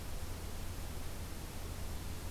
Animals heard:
forest ambience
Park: Acadia National Park